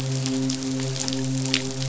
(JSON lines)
{"label": "biophony, midshipman", "recorder": "SoundTrap 500"}